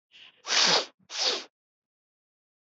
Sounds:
Sniff